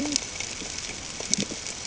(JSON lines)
{"label": "ambient", "recorder": "HydroMoth"}